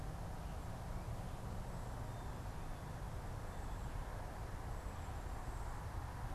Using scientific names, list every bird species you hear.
Bombycilla cedrorum